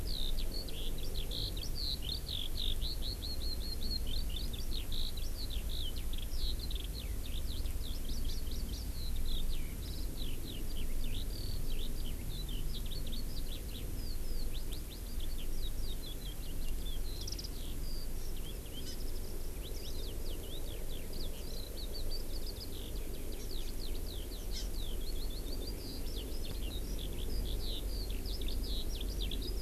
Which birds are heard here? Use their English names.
Eurasian Skylark, Warbling White-eye, Hawaii Amakihi